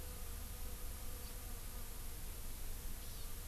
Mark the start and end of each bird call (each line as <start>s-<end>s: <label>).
3.0s-3.3s: Hawaii Amakihi (Chlorodrepanis virens)